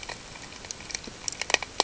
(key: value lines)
label: ambient
recorder: HydroMoth